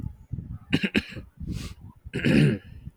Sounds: Throat clearing